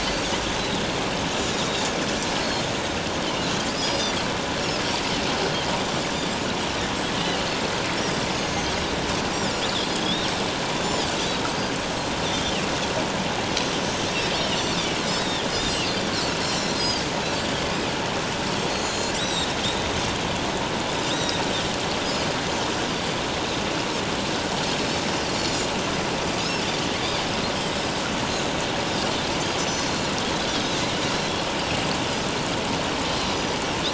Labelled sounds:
1.5	1.8	Pacific white-sided dolphin, 3.6 to 4.0 kHz
2.4	2.7	Pacific white-sided dolphin, 4.1 to 4.4 kHz
3.8	4.1	Pacific white-sided dolphin, 4.6 to 5.9 kHz
8.3	8.7	Pacific white-sided dolphin, 6.1 to 6.8 kHz
9.6	10.3	Pacific white-sided dolphin, 3.2 to 4.0 kHz
10.8	11.7	Pacific white-sided dolphin, 4.6 to 6.5 kHz
12.3	12.6	Pacific white-sided dolphin, 2.6 to 5.4 kHz
14.4	14.7	Pacific white-sided dolphin, 2.8 to 3.2 kHz
15.2	17.6	Pacific white-sided dolphin, 2.6 to 8.0 kHz
18.7	19.6	Pacific white-sided dolphin, 3.3 to 7.9 kHz
21.1	21.4	Pacific white-sided dolphin, 3.4 to 4.0 kHz
25.4	25.7	Pacific white-sided dolphin, 4.1 to 4.5 kHz
29.6	30.1	Pacific white-sided dolphin, 4.1 to 6.1 kHz
30.5	30.8	Pacific white-sided dolphin, 3.7 to 4.2 kHz

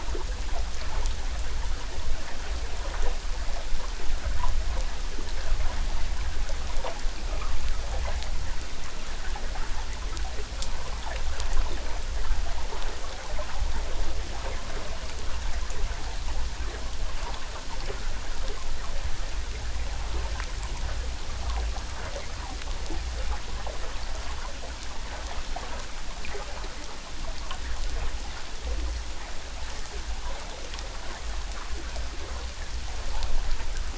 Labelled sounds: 7.3	7.6	water noise, 1.0 to 1.4 kHz

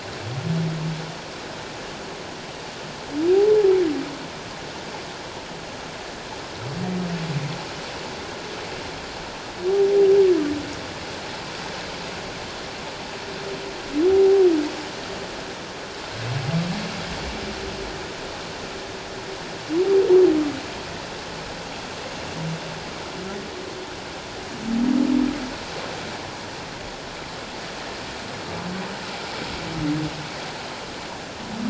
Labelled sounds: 14.1	14.5	humpback whale, 0.78 to 0.88 kHz

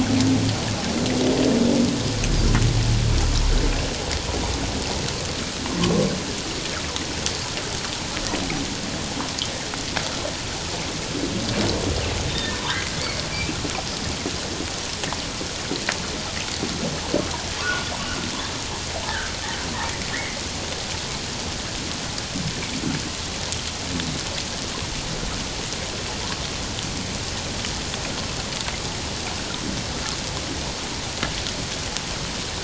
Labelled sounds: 5.8	6.1	humpback whale, 1.0 to 1.2 kHz
12.3	12.6	humpback whale, 1.7 to 3.8 kHz
13.0	13.2	humpback whale, 2.0 to 2.3 kHz
17.6	17.9	humpback whale, 1.0 to 1.5 kHz
19.1	19.3	humpback whale, 1.4 to 1.8 kHz
20.1	20.4	humpback whale, 1.7 to 2.2 kHz

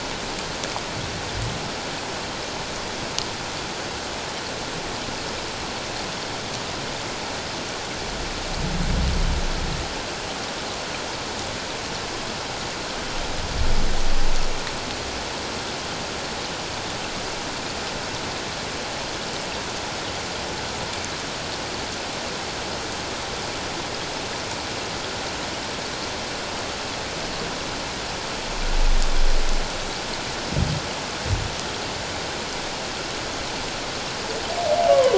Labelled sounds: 34.9	35.1	humpback whale, 0.97 to 1.2 kHz

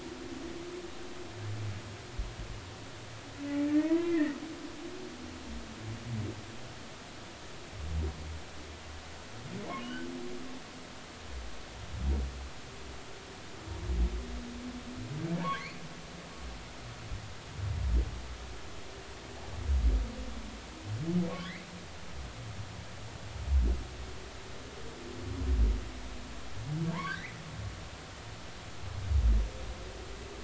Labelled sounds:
3.5	4.4	humpback whale, 0.90 to 2.4 kHz
9.8	10.0	humpback whale, 2.8 to 3.2 kHz
15.4	15.7	humpback whale, 1.0 to 1.2 kHz
26.9	27.4	humpback whale, 0.86 to 2.6 kHz

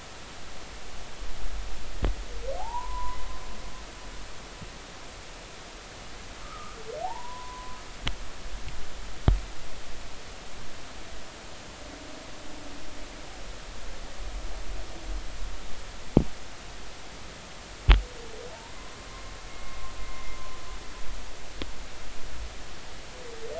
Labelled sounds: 2.6	3.2	humpback whale, 0.80 to 1.1 kHz
6.4	7.8	humpback whale, 0.80 to 1.4 kHz
18.5	18.7	humpback whale, 0.83 to 1.1 kHz
19.5	20.4	humpback whale, 2.0 to 2.2 kHz

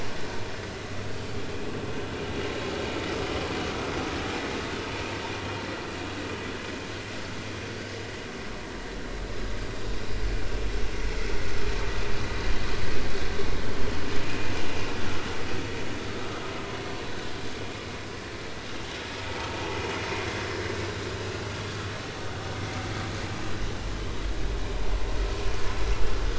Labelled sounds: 14.2	14.5	vessel noise, 2.4 to 2.5 kHz
19.4	19.8	vessel noise, 0.80 to 0.99 kHz

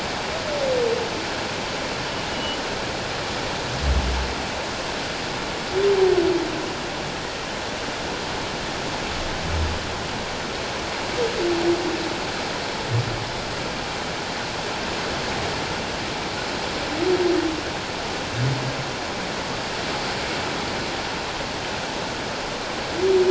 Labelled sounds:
2.3	2.6	humpback whale, 2.9 to 3.0 kHz

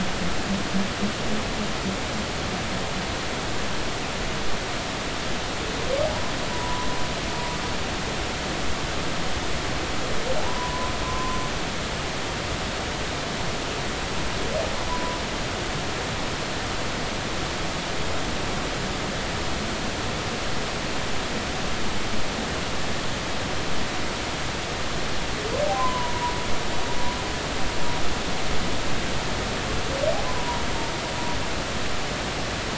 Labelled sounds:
6.5	6.9	humpback whale, 0.93 to 1.1 kHz
10.4	11.4	humpback whale, 0.80 to 1.1 kHz
14.9	15.2	humpback whale, 0.93 to 1.1 kHz
25.7	26.3	humpback whale, 0.90 to 1.1 kHz
30.2	30.6	humpback whale, 0.90 to 1.1 kHz

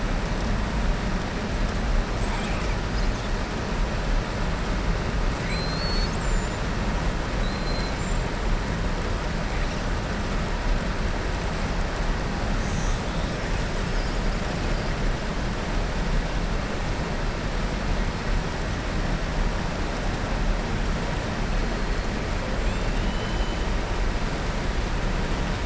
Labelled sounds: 5.3	6.6	killer whale, southern resident, 2.0 to 7.9 kHz
22.6	23.6	killer whale, southern resident, 2.5 to 4.0 kHz

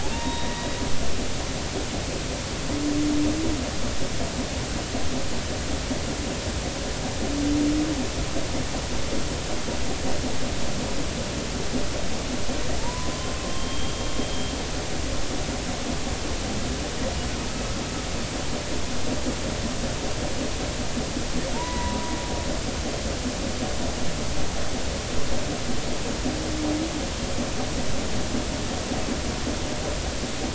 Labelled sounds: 0.1	0.8	humpback whale, 0.86 to 3.9 kHz
12.8	13.9	humpback whale, 0.83 to 3.3 kHz
21.5	22.0	humpback whale, 0.86 to 2.0 kHz

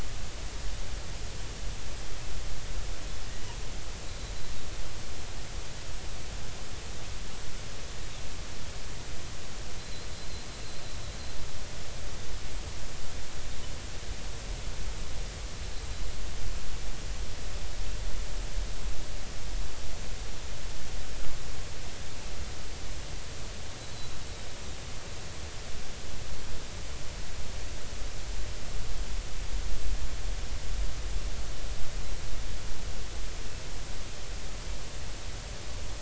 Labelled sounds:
9.8	10.1	killer whale, Bigg's (transient), 4.0 to 4.3 kHz

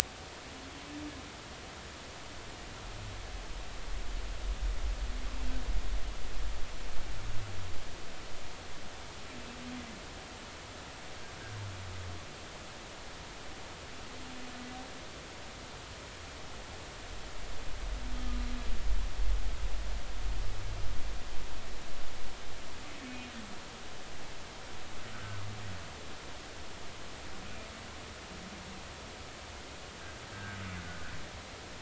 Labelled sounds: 30.3	30.6	humpback whale, 1.4 to 1.7 kHz

